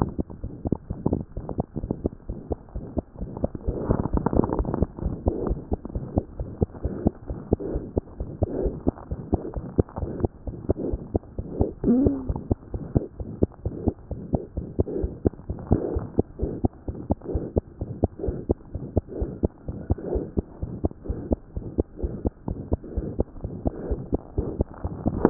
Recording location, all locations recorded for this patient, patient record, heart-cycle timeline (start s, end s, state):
pulmonary valve (PV)
aortic valve (AV)+pulmonary valve (PV)+tricuspid valve (TV)+mitral valve (MV)
#Age: Infant
#Sex: Female
#Height: 64.0 cm
#Weight: 6.0 kg
#Pregnancy status: False
#Murmur: Present
#Murmur locations: aortic valve (AV)+mitral valve (MV)+pulmonary valve (PV)+tricuspid valve (TV)
#Most audible location: tricuspid valve (TV)
#Systolic murmur timing: Holosystolic
#Systolic murmur shape: Plateau
#Systolic murmur grading: II/VI
#Systolic murmur pitch: Medium
#Systolic murmur quality: Blowing
#Diastolic murmur timing: nan
#Diastolic murmur shape: nan
#Diastolic murmur grading: nan
#Diastolic murmur pitch: nan
#Diastolic murmur quality: nan
#Outcome: Abnormal
#Campaign: 2015 screening campaign
0.00	5.89	unannotated
5.89	5.93	diastole
5.93	6.01	S1
6.01	6.14	systole
6.14	6.22	S2
6.22	6.37	diastole
6.37	6.43	S1
6.43	6.60	systole
6.60	6.68	S2
6.68	6.83	diastole
6.83	6.93	S1
6.93	7.04	systole
7.04	7.12	S2
7.12	7.28	diastole
7.28	7.35	S1
7.35	7.51	systole
7.51	7.59	S2
7.59	7.74	diastole
7.74	7.82	S1
7.82	7.95	systole
7.95	8.02	S2
8.02	8.19	diastole
8.19	8.28	S1
8.28	8.40	systole
8.40	8.47	S2
8.47	8.62	diastole
8.62	8.71	S1
8.71	8.85	systole
8.85	8.92	S2
8.92	9.10	diastole
9.10	9.16	S1
9.16	9.32	systole
9.32	9.40	S2
9.40	9.54	diastole
9.54	9.62	S1
9.62	9.77	systole
9.77	9.86	S2
9.86	10.00	diastole
10.00	10.09	S1
10.09	10.22	systole
10.22	10.30	S2
10.30	10.46	diastole
10.46	10.53	S1
10.53	10.68	systole
10.68	10.76	S2
10.76	10.89	diastole
10.89	10.98	S1
10.98	11.12	systole
11.12	11.20	S2
11.20	11.36	diastole
11.36	11.45	S1
11.45	11.58	systole
11.58	11.66	S2
11.66	11.84	diastole
11.84	25.30	unannotated